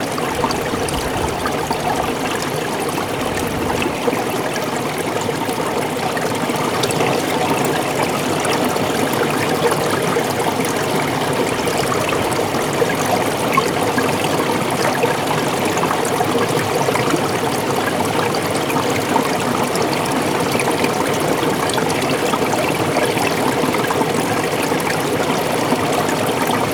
Is this a car?
no